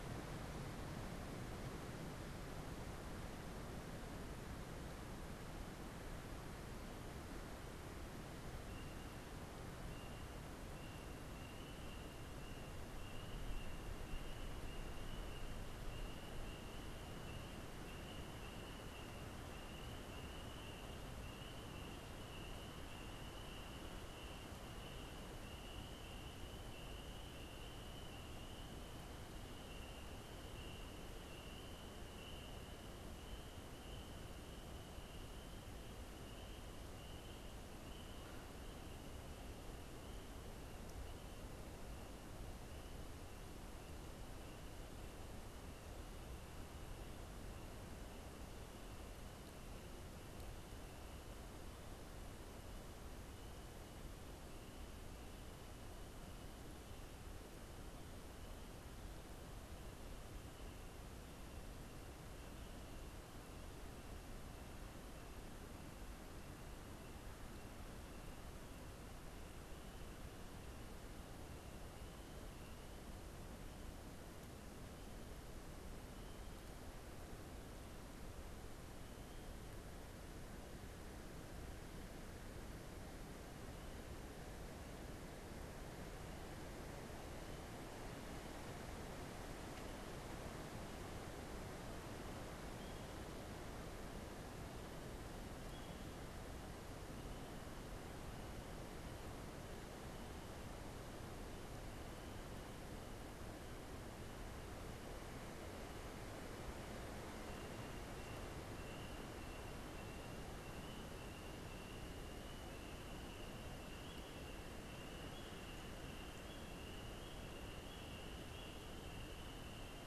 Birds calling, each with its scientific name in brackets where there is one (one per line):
Canada Goose (Branta canadensis)